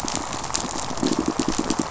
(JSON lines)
{"label": "biophony, pulse", "recorder": "SoundTrap 500"}